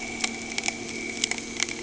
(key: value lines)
label: anthrophony, boat engine
recorder: HydroMoth